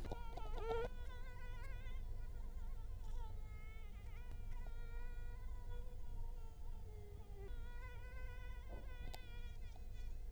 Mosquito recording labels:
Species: Culex quinquefasciatus; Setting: cup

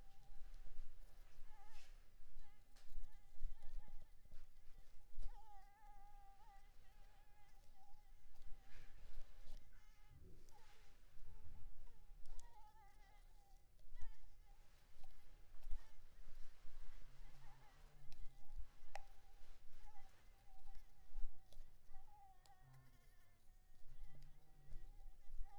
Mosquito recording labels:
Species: Anopheles maculipalpis; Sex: female; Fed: unfed; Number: one; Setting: cup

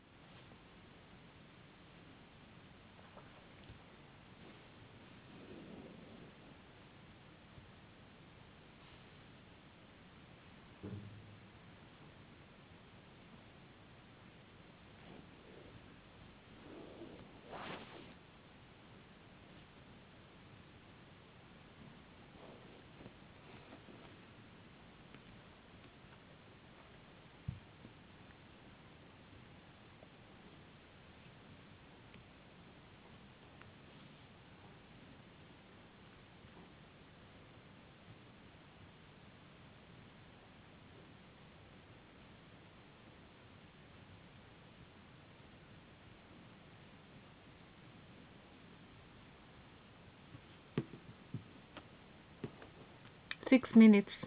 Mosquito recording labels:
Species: no mosquito; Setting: insect culture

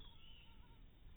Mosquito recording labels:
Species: mosquito; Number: one; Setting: cup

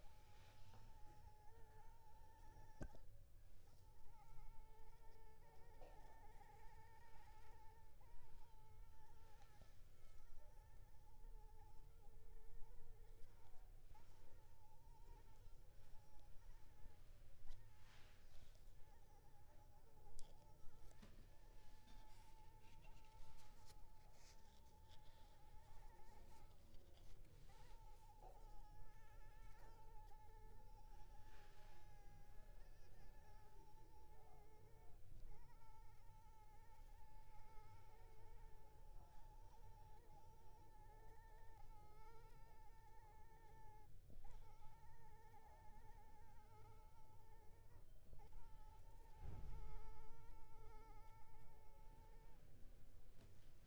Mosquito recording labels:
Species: Anopheles arabiensis; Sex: female; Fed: unfed; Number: one; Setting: cup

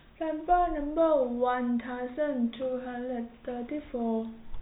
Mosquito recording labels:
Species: no mosquito; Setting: cup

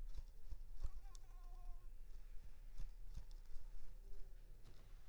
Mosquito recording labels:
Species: Anopheles arabiensis; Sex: female; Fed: unfed; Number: one; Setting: cup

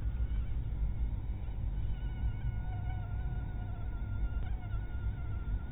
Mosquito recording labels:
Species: mosquito; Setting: cup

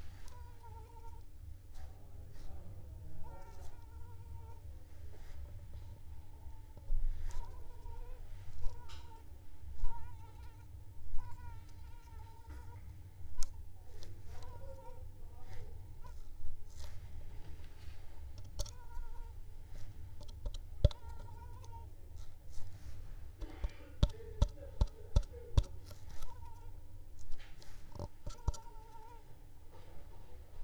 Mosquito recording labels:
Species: Culex pipiens complex; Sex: female; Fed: unfed; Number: one; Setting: cup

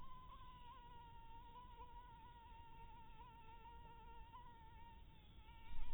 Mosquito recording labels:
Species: Anopheles maculatus; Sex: female; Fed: blood-fed; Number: one; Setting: cup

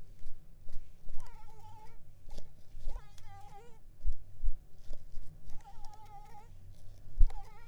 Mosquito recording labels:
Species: Mansonia uniformis; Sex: female; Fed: unfed; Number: one; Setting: cup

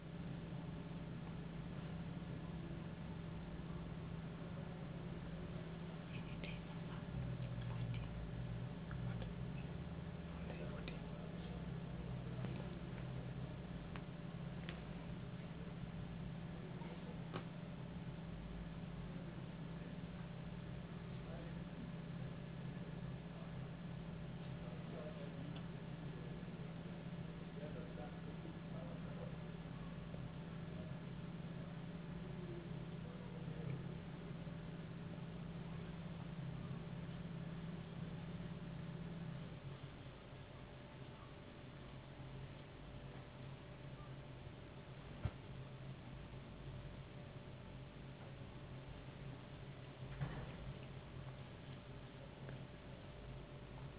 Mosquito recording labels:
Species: no mosquito; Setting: insect culture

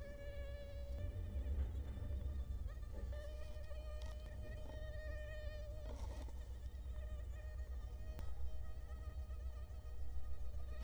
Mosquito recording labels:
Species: Culex quinquefasciatus; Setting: cup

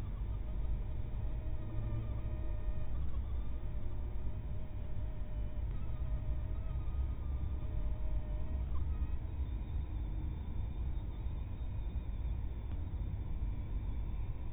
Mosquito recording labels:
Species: mosquito; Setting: cup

